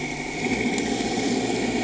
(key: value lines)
label: anthrophony, boat engine
recorder: HydroMoth